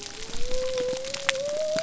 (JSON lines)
{"label": "biophony", "recorder": "SoundTrap 300"}